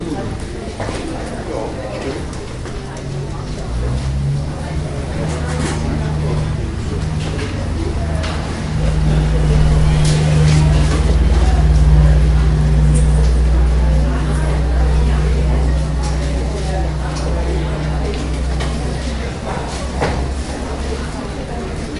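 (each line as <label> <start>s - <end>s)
Airport gate waiting area ambience with multiple passengers talking indistinctly. 0.0s - 22.0s
An aircraft engine sound increases in intensity as it departs and then decreases. 3.4s - 21.9s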